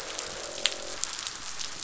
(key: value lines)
label: biophony, croak
recorder: SoundTrap 500